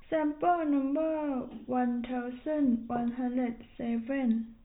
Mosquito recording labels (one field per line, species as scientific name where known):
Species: no mosquito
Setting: cup